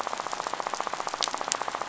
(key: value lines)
label: biophony, rattle
recorder: SoundTrap 500